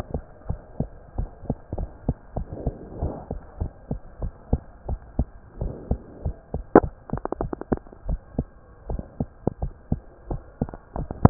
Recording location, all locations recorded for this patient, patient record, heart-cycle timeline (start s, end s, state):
tricuspid valve (TV)
aortic valve (AV)+pulmonary valve (PV)+tricuspid valve (TV)+mitral valve (MV)
#Age: Child
#Sex: Female
#Height: 108.0 cm
#Weight: 17.2 kg
#Pregnancy status: False
#Murmur: Absent
#Murmur locations: nan
#Most audible location: nan
#Systolic murmur timing: nan
#Systolic murmur shape: nan
#Systolic murmur grading: nan
#Systolic murmur pitch: nan
#Systolic murmur quality: nan
#Diastolic murmur timing: nan
#Diastolic murmur shape: nan
#Diastolic murmur grading: nan
#Diastolic murmur pitch: nan
#Diastolic murmur quality: nan
#Outcome: Abnormal
#Campaign: 2015 screening campaign
0.00	0.45	unannotated
0.45	0.60	S1
0.60	0.76	systole
0.76	0.90	S2
0.90	1.16	diastole
1.16	1.30	S1
1.30	1.46	systole
1.46	1.56	S2
1.56	1.76	diastole
1.76	1.90	S1
1.90	2.06	systole
2.06	2.16	S2
2.16	2.35	diastole
2.35	2.48	S1
2.48	2.64	systole
2.64	2.74	S2
2.74	3.00	diastole
3.00	3.16	S1
3.16	3.30	systole
3.30	3.40	S2
3.40	3.58	diastole
3.58	3.72	S1
3.72	3.88	systole
3.88	4.00	S2
4.00	4.19	diastole
4.19	4.32	S1
4.32	4.48	systole
4.48	4.64	S2
4.64	4.86	diastole
4.86	5.00	S1
5.00	5.16	systole
5.16	5.30	S2
5.30	5.58	diastole
5.58	5.74	S1
5.74	5.88	systole
5.88	6.00	S2
6.00	6.23	diastole
6.23	6.36	S1
6.36	6.50	systole
6.50	6.62	S2
6.62	6.74	diastole
6.74	6.92	S1
6.92	11.30	unannotated